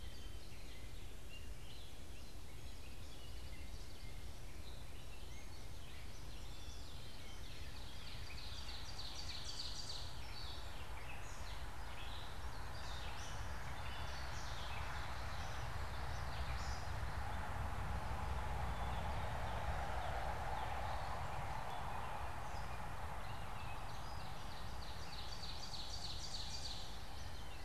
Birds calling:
Northern Cardinal (Cardinalis cardinalis), Ovenbird (Seiurus aurocapilla), Gray Catbird (Dumetella carolinensis)

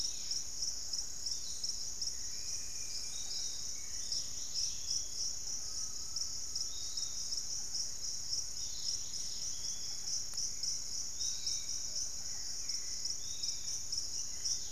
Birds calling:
Hauxwell's Thrush (Turdus hauxwelli), Piratic Flycatcher (Legatus leucophaius), unidentified bird, Collared Trogon (Trogon collaris), Dusky-capped Greenlet (Pachysylvia hypoxantha), Undulated Tinamou (Crypturellus undulatus), White-throated Woodpecker (Piculus leucolaemus)

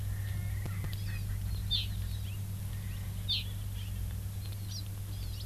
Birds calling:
Erckel's Francolin (Pternistis erckelii), Hawaii Amakihi (Chlorodrepanis virens)

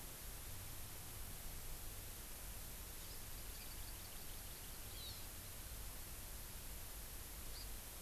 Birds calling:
Hawaii Amakihi (Chlorodrepanis virens)

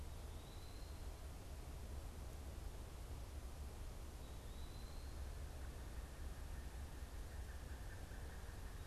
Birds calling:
Pileated Woodpecker (Dryocopus pileatus), Eastern Wood-Pewee (Contopus virens)

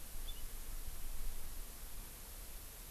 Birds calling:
House Finch (Haemorhous mexicanus)

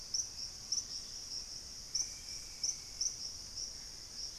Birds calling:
Gray Antbird (Cercomacra cinerascens), Dusky-capped Greenlet (Pachysylvia hypoxantha), Screaming Piha (Lipaugus vociferans), White-throated Woodpecker (Piculus leucolaemus)

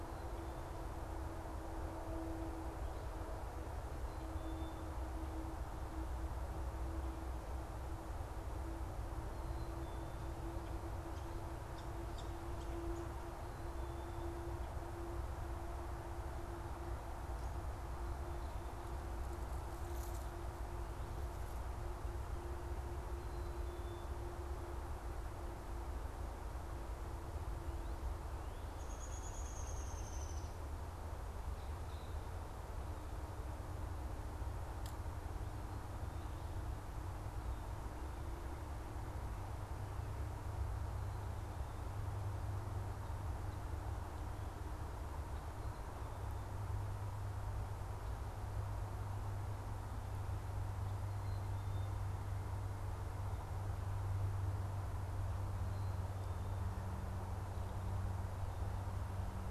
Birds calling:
Black-capped Chickadee (Poecile atricapillus), Downy Woodpecker (Dryobates pubescens), unidentified bird

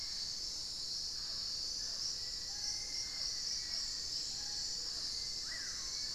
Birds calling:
Mealy Parrot (Amazona farinosa), unidentified bird, Hauxwell's Thrush (Turdus hauxwelli), Screaming Piha (Lipaugus vociferans), Black-faced Antthrush (Formicarius analis)

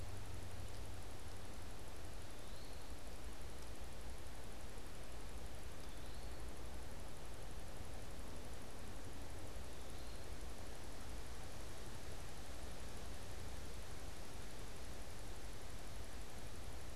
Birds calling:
Eastern Wood-Pewee (Contopus virens)

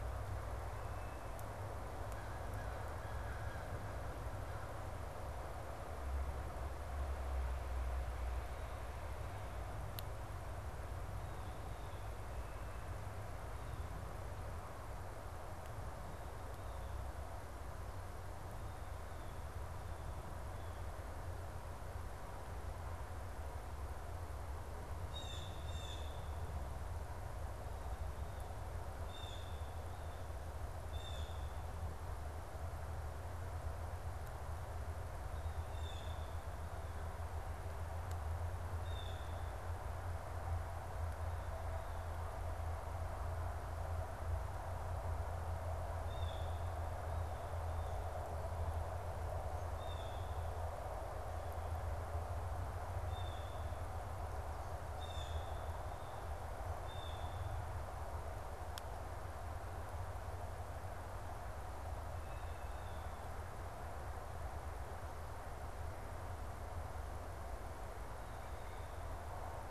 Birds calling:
Blue Jay (Cyanocitta cristata), American Crow (Corvus brachyrhynchos)

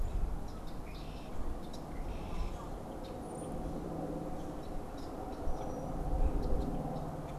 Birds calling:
Brown-headed Cowbird (Molothrus ater), Red-winged Blackbird (Agelaius phoeniceus)

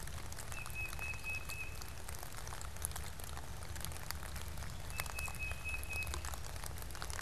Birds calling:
Tufted Titmouse (Baeolophus bicolor)

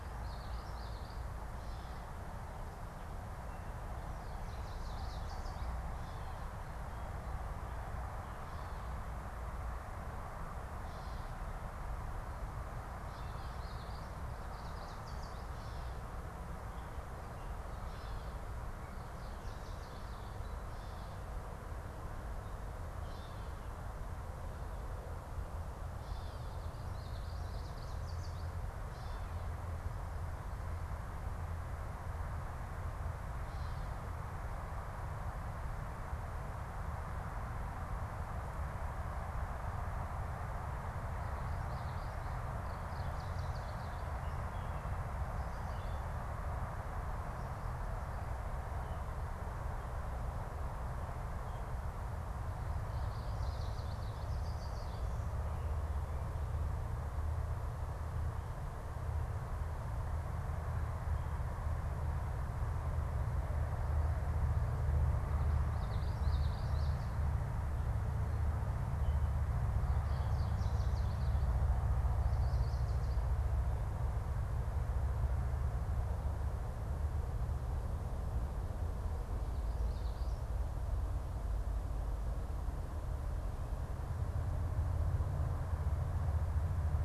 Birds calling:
Yellow Warbler (Setophaga petechia), Gray Catbird (Dumetella carolinensis), Common Yellowthroat (Geothlypis trichas), Chestnut-sided Warbler (Setophaga pensylvanica)

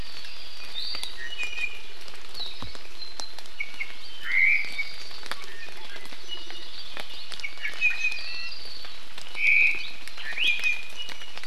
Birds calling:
Iiwi (Drepanis coccinea), Omao (Myadestes obscurus), Hawaii Creeper (Loxops mana)

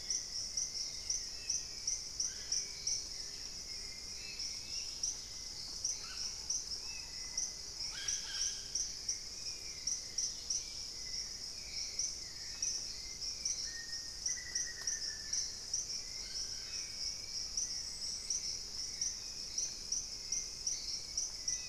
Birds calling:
Red-bellied Macaw (Orthopsittaca manilatus), Hauxwell's Thrush (Turdus hauxwelli), Dusky-capped Greenlet (Pachysylvia hypoxantha), Black-faced Antthrush (Formicarius analis), unidentified bird

